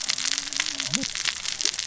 {"label": "biophony, cascading saw", "recorder": "SoundTrap 600 or HydroMoth"}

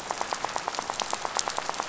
{"label": "biophony, rattle", "recorder": "SoundTrap 500"}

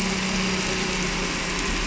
{"label": "anthrophony, boat engine", "recorder": "SoundTrap 300"}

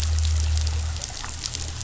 {"label": "anthrophony, boat engine", "recorder": "SoundTrap 500"}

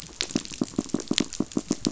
{"label": "biophony, knock", "recorder": "SoundTrap 500"}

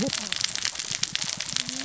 {"label": "biophony, cascading saw", "recorder": "SoundTrap 600 or HydroMoth"}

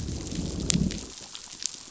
{"label": "biophony, growl", "recorder": "SoundTrap 500"}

